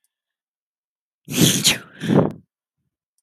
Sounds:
Sneeze